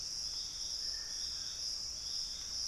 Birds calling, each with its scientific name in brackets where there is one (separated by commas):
Dusky-throated Antshrike (Thamnomanes ardesiacus), Thrush-like Wren (Campylorhynchus turdinus)